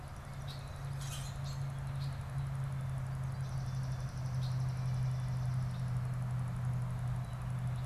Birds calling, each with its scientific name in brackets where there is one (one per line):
Common Grackle (Quiscalus quiscula)
Swamp Sparrow (Melospiza georgiana)